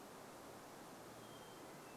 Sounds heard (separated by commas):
Hermit Thrush song